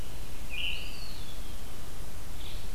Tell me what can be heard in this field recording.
Veery, Eastern Wood-Pewee